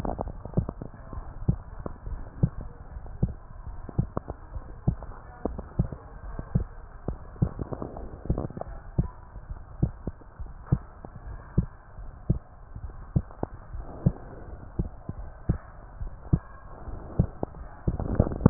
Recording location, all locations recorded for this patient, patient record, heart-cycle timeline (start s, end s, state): pulmonary valve (PV)
pulmonary valve (PV)+tricuspid valve (TV)+mitral valve (MV)
#Age: Child
#Sex: Female
#Height: 128.0 cm
#Weight: 36.4 kg
#Pregnancy status: False
#Murmur: Present
#Murmur locations: mitral valve (MV)+pulmonary valve (PV)
#Most audible location: pulmonary valve (PV)
#Systolic murmur timing: Holosystolic
#Systolic murmur shape: Plateau
#Systolic murmur grading: I/VI
#Systolic murmur pitch: Low
#Systolic murmur quality: Harsh
#Diastolic murmur timing: nan
#Diastolic murmur shape: nan
#Diastolic murmur grading: nan
#Diastolic murmur pitch: nan
#Diastolic murmur quality: nan
#Outcome: Abnormal
#Campaign: 2015 screening campaign
0.00	9.38	unannotated
9.38	9.46	diastole
9.46	9.61	S1
9.61	9.75	systole
9.75	9.92	S2
9.92	10.33	diastole
10.33	10.51	S1
10.51	10.67	systole
10.67	10.85	S2
10.85	11.18	diastole
11.18	11.40	S1
11.40	11.50	systole
11.50	11.70	S2
11.70	11.94	diastole
11.94	12.12	S1
12.12	12.26	systole
12.26	12.42	S2
12.42	12.74	diastole
12.74	12.98	S1
12.98	13.11	systole
13.11	13.27	S2
13.27	13.68	diastole
13.68	13.88	S1
13.88	14.00	systole
14.00	14.16	S2
14.16	14.35	diastole
14.35	14.57	S1
14.57	14.74	systole
14.74	14.94	S2
14.94	15.14	diastole
15.14	15.33	S1
15.33	15.43	systole
15.43	15.63	S2
15.63	15.96	diastole
15.96	16.15	S1
16.15	16.27	systole
16.27	16.43	S2
16.43	16.83	diastole
16.83	17.03	S1
17.03	17.14	systole
17.14	17.30	S2
17.30	17.68	diastole
17.68	18.50	unannotated